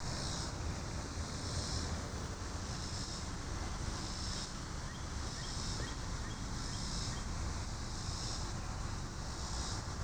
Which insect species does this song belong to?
Neotibicen robinsonianus